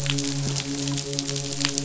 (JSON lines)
{"label": "biophony, midshipman", "recorder": "SoundTrap 500"}